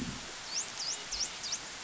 {"label": "biophony, dolphin", "recorder": "SoundTrap 500"}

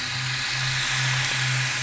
{"label": "anthrophony, boat engine", "recorder": "SoundTrap 500"}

